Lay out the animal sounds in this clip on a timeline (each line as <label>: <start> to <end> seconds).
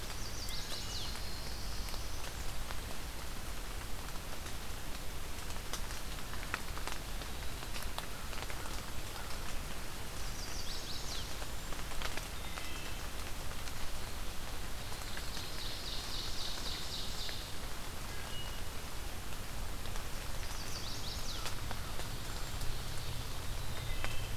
Chestnut-sided Warbler (Setophaga pensylvanica): 0.0 to 1.1 seconds
Black-throated Blue Warbler (Setophaga caerulescens): 0.8 to 2.3 seconds
Eastern Wood-Pewee (Contopus virens): 7.0 to 8.1 seconds
Chestnut-sided Warbler (Setophaga pensylvanica): 10.1 to 11.3 seconds
Cedar Waxwing (Bombycilla cedrorum): 11.2 to 11.7 seconds
Wood Thrush (Hylocichla mustelina): 12.4 to 12.9 seconds
Ovenbird (Seiurus aurocapilla): 14.8 to 17.4 seconds
Wood Thrush (Hylocichla mustelina): 18.0 to 18.7 seconds
Chestnut-sided Warbler (Setophaga pensylvanica): 20.1 to 21.5 seconds
Cedar Waxwing (Bombycilla cedrorum): 22.2 to 22.7 seconds
Wood Thrush (Hylocichla mustelina): 23.6 to 24.3 seconds